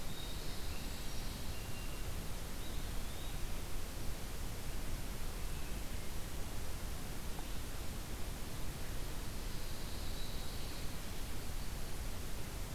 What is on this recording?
Brown Creeper, Eastern Wood-Pewee, Pine Warbler